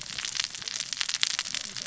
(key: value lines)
label: biophony, cascading saw
recorder: SoundTrap 600 or HydroMoth